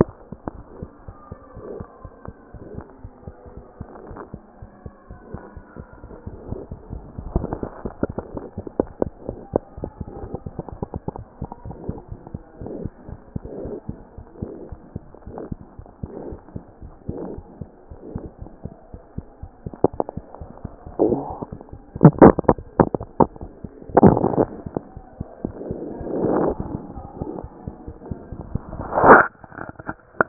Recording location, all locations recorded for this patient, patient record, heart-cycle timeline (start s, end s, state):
mitral valve (MV)
aortic valve (AV)+mitral valve (MV)
#Age: Infant
#Sex: Male
#Height: 54.0 cm
#Weight: nan
#Pregnancy status: False
#Murmur: Absent
#Murmur locations: nan
#Most audible location: nan
#Systolic murmur timing: nan
#Systolic murmur shape: nan
#Systolic murmur grading: nan
#Systolic murmur pitch: nan
#Systolic murmur quality: nan
#Diastolic murmur timing: nan
#Diastolic murmur shape: nan
#Diastolic murmur grading: nan
#Diastolic murmur pitch: nan
#Diastolic murmur quality: nan
#Outcome: Normal
#Campaign: 2014 screening campaign
0.00	4.02	unannotated
4.02	4.10	diastole
4.10	4.18	S1
4.18	4.33	systole
4.33	4.42	S2
4.42	4.62	diastole
4.62	4.68	S1
4.68	4.86	systole
4.86	4.94	S2
4.94	5.10	diastole
5.10	5.16	S1
5.16	5.34	systole
5.34	5.42	S2
5.42	5.56	diastole
5.56	5.64	S1
5.64	5.79	systole
5.79	5.88	S2
5.88	6.02	diastole
6.02	6.10	S1
6.10	6.26	systole
6.26	6.35	S2
6.35	6.50	diastole
6.50	6.59	S1
6.59	6.70	systole
6.70	6.78	S2
6.78	6.89	diastole
6.89	7.02	S1
7.02	7.18	systole
7.18	7.25	S2
7.25	7.39	diastole
7.39	30.29	unannotated